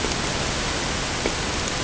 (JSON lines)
{"label": "ambient", "recorder": "HydroMoth"}